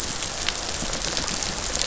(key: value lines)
label: biophony, rattle response
recorder: SoundTrap 500